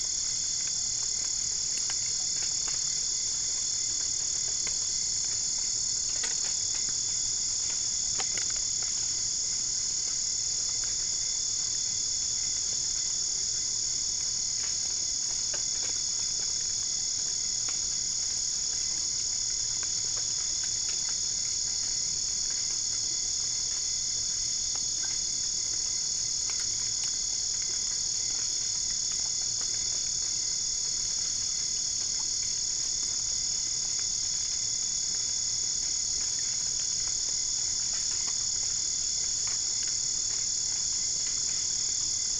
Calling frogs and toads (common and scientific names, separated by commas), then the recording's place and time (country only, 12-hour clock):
none
Brazil, 2:15am